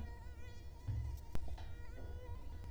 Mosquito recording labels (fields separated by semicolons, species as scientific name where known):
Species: Culex quinquefasciatus; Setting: cup